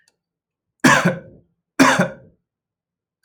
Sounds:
Cough